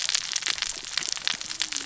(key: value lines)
label: biophony, cascading saw
recorder: SoundTrap 600 or HydroMoth